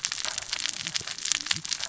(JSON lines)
{"label": "biophony, cascading saw", "recorder": "SoundTrap 600 or HydroMoth"}